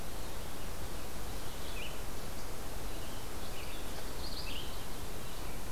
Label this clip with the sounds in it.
Red-eyed Vireo